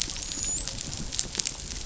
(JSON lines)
{"label": "biophony, dolphin", "recorder": "SoundTrap 500"}